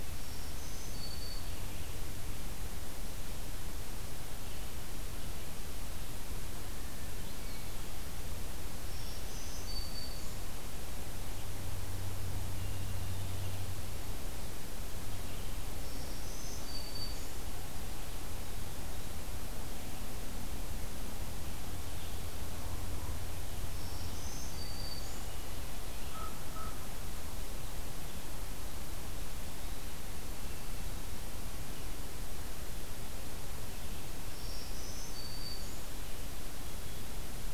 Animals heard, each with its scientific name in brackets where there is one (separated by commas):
Common Raven (Corvus corax), Black-throated Green Warbler (Setophaga virens)